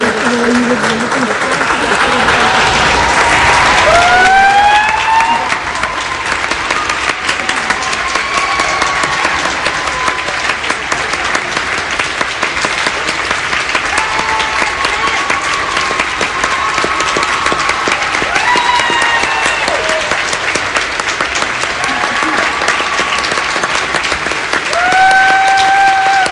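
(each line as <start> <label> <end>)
0.0 People talking softly in the background. 5.9
0.0 People clapping hands together in unison. 26.3
3.5 A group of people cheering and screaming loudly. 10.7
5.9 A series of quick, strong claps. 24.9
13.4 A group of people cheering and screaming loudly. 20.3
21.8 A group of people cheering and screaming loudly. 26.3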